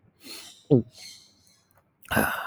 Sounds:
Throat clearing